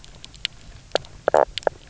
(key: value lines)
label: biophony, knock croak
recorder: SoundTrap 300